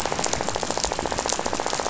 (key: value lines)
label: biophony, rattle
recorder: SoundTrap 500